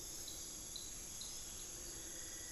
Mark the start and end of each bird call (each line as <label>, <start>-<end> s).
Cinnamon-throated Woodcreeper (Dendrexetastes rufigula), 1.7-2.5 s